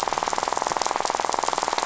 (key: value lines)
label: biophony, rattle
recorder: SoundTrap 500